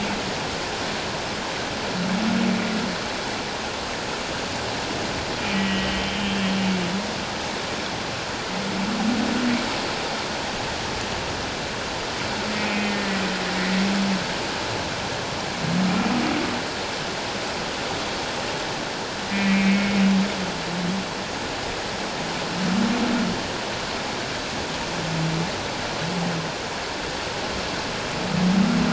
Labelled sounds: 5.4	6.5	humpback whale, 1.9 to 3.2 kHz
12.6	13.0	humpback whale, 2.0 to 2.6 kHz
19.3	20.0	humpback whale, 2.1 to 2.7 kHz

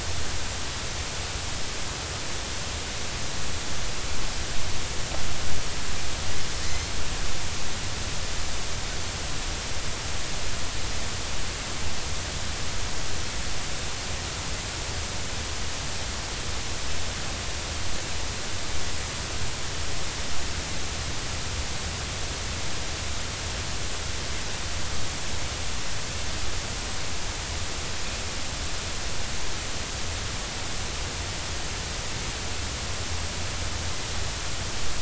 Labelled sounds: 6.6	6.9	Pacific white-sided dolphin, 1.8 to 2.1 kHz

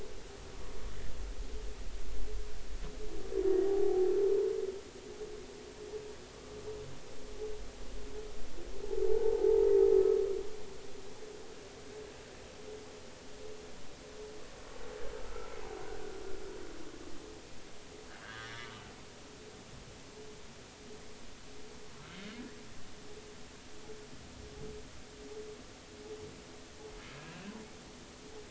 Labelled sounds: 3.6	4.1	humpback whale, 0.80 to 0.86 kHz
9.1	9.6	humpback whale, 0.80 to 0.99 kHz
15.2	15.6	humpback whale, 1.2 to 1.5 kHz
18.1	18.7	humpback whale, 1.4 to 3.6 kHz
27.3	27.5	humpback whale, 2.6 to 2.9 kHz

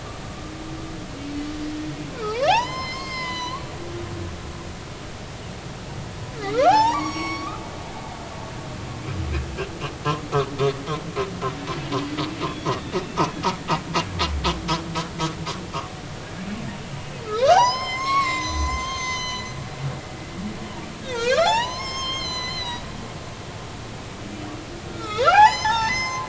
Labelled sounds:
2.2	3.6	humpback whale, 0.80 to 7.2 kHz
6.4	8.3	humpback whale, 0.80 to 7.8 kHz
12.6	13.0	humpback whale, 1.7 to 2.0 kHz
17.2	19.5	humpback whale, 0.80 to 7.4 kHz
21.1	22.8	humpback whale, 0.80 to 7.5 kHz
24.9	26.2	humpback whale, 0.80 to 7.3 kHz

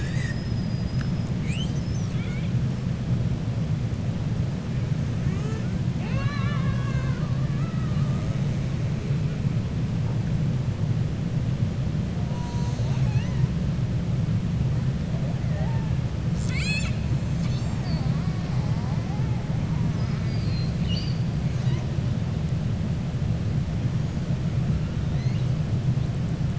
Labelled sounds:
2.0	2.5	killer whale, 1.3 to 4.3 kHz

